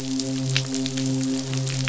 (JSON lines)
{"label": "biophony, midshipman", "recorder": "SoundTrap 500"}